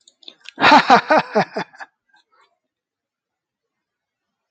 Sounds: Laughter